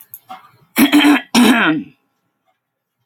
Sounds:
Throat clearing